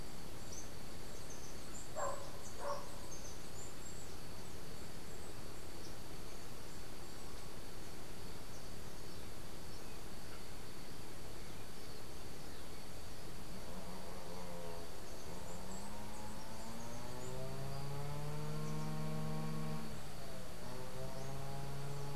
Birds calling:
Chestnut-capped Brushfinch (Arremon brunneinucha)

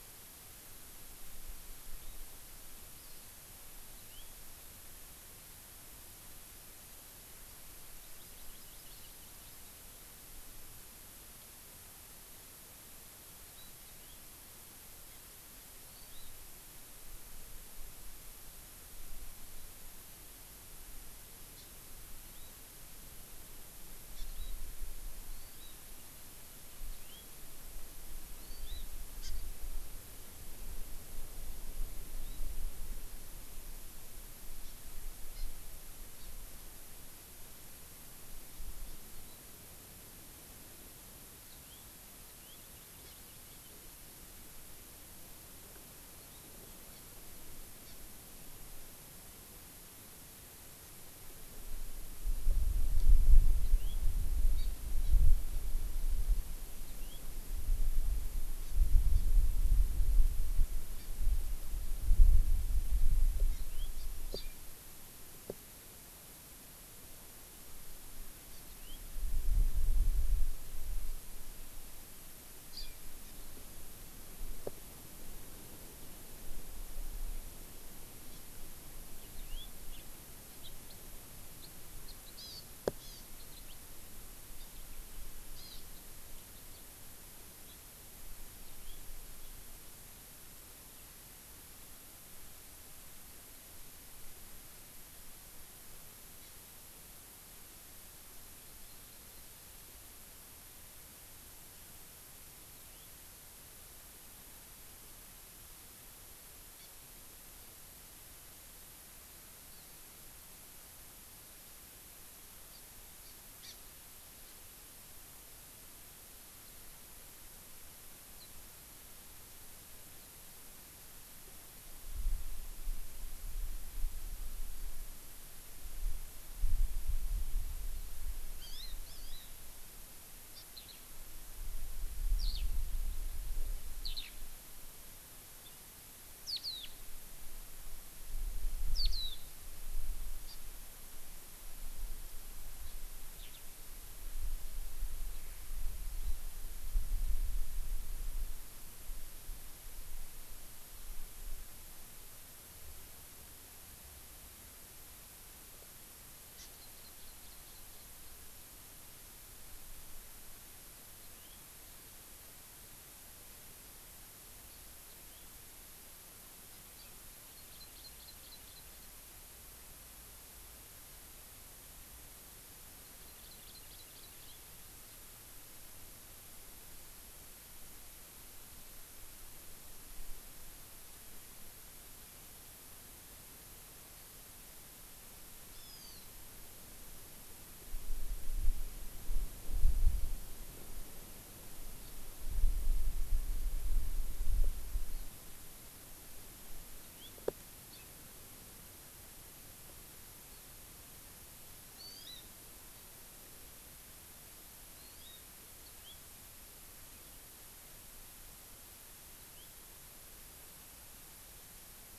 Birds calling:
Hawaii Amakihi (Chlorodrepanis virens), Eurasian Skylark (Alauda arvensis), House Finch (Haemorhous mexicanus)

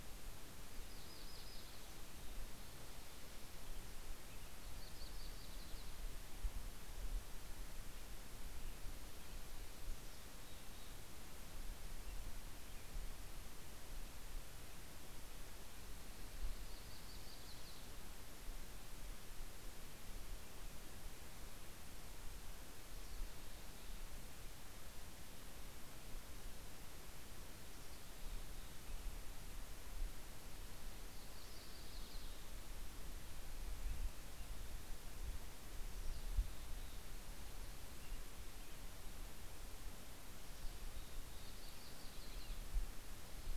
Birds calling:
Yellow-rumped Warbler (Setophaga coronata), Mountain Chickadee (Poecile gambeli), American Robin (Turdus migratorius)

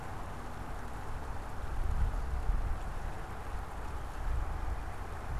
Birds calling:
Northern Cardinal (Cardinalis cardinalis)

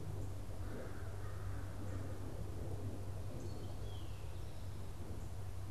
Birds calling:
Eastern Towhee (Pipilo erythrophthalmus), American Crow (Corvus brachyrhynchos)

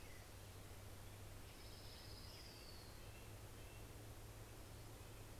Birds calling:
Orange-crowned Warbler (Leiothlypis celata), Red-breasted Nuthatch (Sitta canadensis)

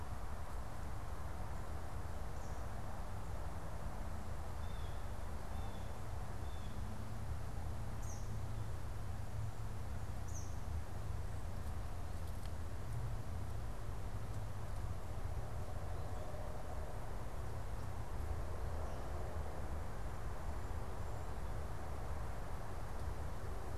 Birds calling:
Eastern Kingbird (Tyrannus tyrannus), Blue Jay (Cyanocitta cristata)

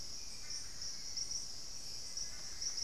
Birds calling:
Hauxwell's Thrush (Turdus hauxwelli), Long-billed Woodcreeper (Nasica longirostris)

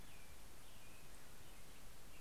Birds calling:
Black-headed Grosbeak (Pheucticus melanocephalus)

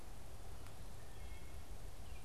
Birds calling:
Wood Thrush (Hylocichla mustelina)

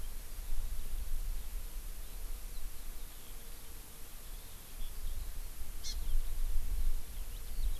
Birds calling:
Hawaii Amakihi (Chlorodrepanis virens), Eurasian Skylark (Alauda arvensis)

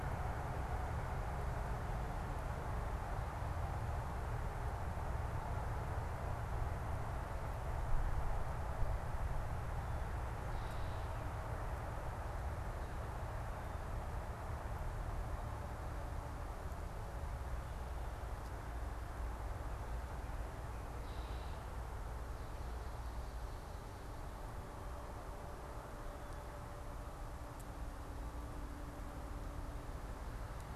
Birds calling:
Red-winged Blackbird (Agelaius phoeniceus)

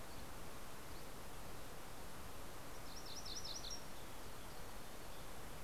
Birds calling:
MacGillivray's Warbler (Geothlypis tolmiei)

